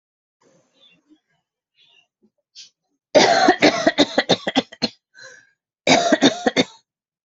{"expert_labels": [{"quality": "good", "cough_type": "dry", "dyspnea": false, "wheezing": false, "stridor": false, "choking": false, "congestion": false, "nothing": true, "diagnosis": "upper respiratory tract infection", "severity": "mild"}], "age": 47, "gender": "female", "respiratory_condition": false, "fever_muscle_pain": false, "status": "symptomatic"}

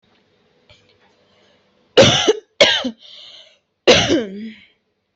{"expert_labels": [{"quality": "good", "cough_type": "dry", "dyspnea": false, "wheezing": false, "stridor": false, "choking": false, "congestion": false, "nothing": true, "diagnosis": "upper respiratory tract infection", "severity": "mild"}], "age": 19, "gender": "female", "respiratory_condition": false, "fever_muscle_pain": false, "status": "healthy"}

